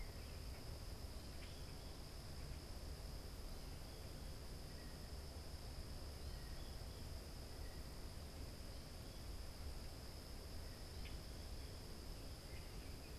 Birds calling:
Common Grackle (Quiscalus quiscula), Blue Jay (Cyanocitta cristata), American Goldfinch (Spinus tristis)

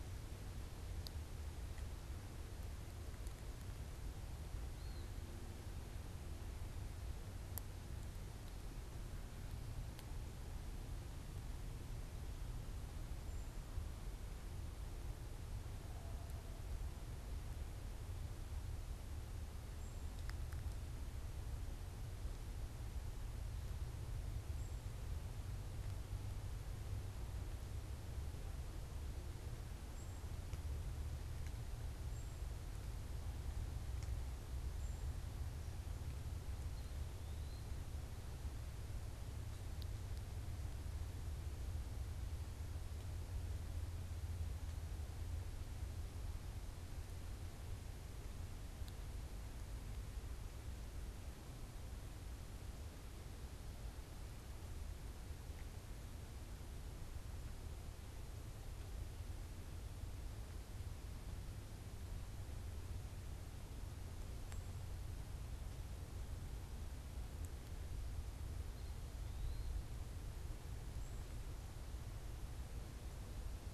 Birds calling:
unidentified bird, Eastern Wood-Pewee (Contopus virens)

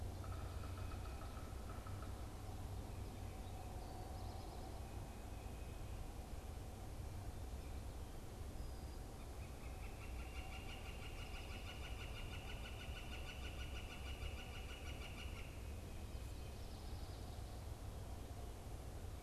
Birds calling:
Yellow-bellied Sapsucker (Sphyrapicus varius), Northern Flicker (Colaptes auratus)

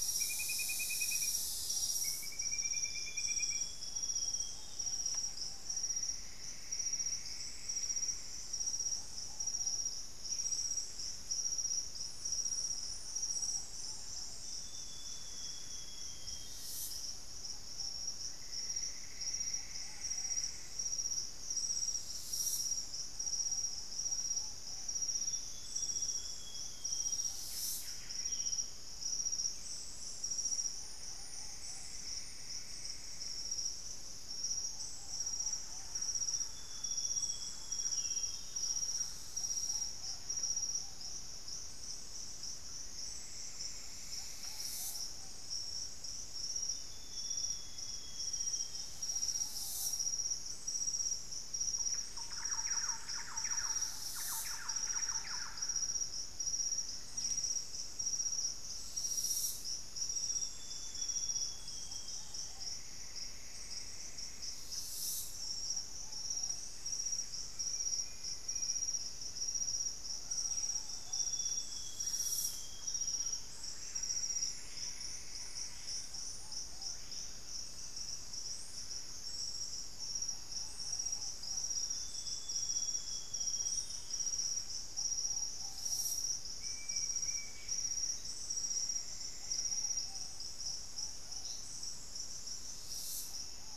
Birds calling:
Buff-breasted Wren (Cantorchilus leucotis), Screaming Piha (Lipaugus vociferans), Ringed Woodpecker (Celeus torquatus), Black-faced Antthrush (Formicarius analis), unidentified bird, Golden-crowned Spadebill (Platyrinchus coronatus), Ruddy Pigeon (Patagioenas subvinacea), Plumbeous Antbird (Myrmelastes hyperythrus), Thrush-like Wren (Campylorhynchus turdinus), Amazonian Grosbeak (Cyanoloxia rothschildii), Grayish Mourner (Rhytipterna simplex)

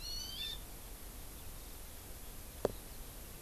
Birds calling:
Hawaii Amakihi (Chlorodrepanis virens)

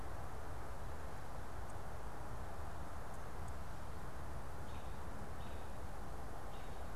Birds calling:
American Robin (Turdus migratorius)

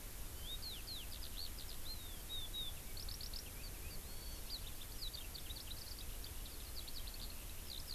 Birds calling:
Eurasian Skylark (Alauda arvensis)

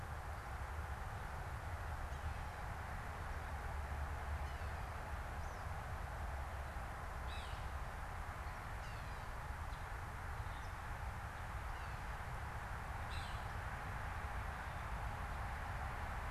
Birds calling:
Yellow-bellied Sapsucker (Sphyrapicus varius)

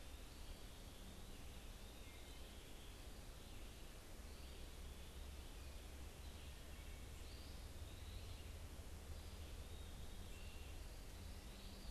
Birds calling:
Eastern Wood-Pewee (Contopus virens), American Robin (Turdus migratorius)

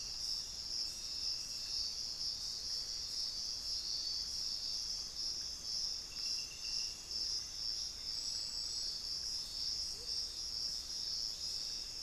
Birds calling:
Amazonian Motmot (Momotus momota), Hauxwell's Thrush (Turdus hauxwelli)

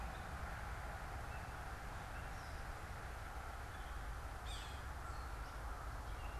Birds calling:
Gray Catbird (Dumetella carolinensis), Yellow-bellied Sapsucker (Sphyrapicus varius)

